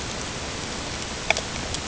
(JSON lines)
{"label": "ambient", "recorder": "HydroMoth"}